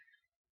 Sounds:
Sniff